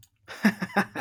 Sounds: Laughter